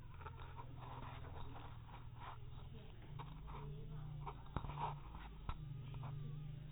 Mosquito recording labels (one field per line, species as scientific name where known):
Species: mosquito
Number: one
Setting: cup